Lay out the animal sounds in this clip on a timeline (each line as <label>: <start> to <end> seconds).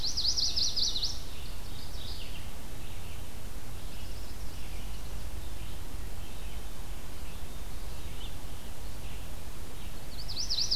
Chestnut-sided Warbler (Setophaga pensylvanica): 0.0 to 1.6 seconds
Red-eyed Vireo (Vireo olivaceus): 0.0 to 10.8 seconds
Mourning Warbler (Geothlypis philadelphia): 1.3 to 2.5 seconds
Chestnut-sided Warbler (Setophaga pensylvanica): 9.8 to 10.8 seconds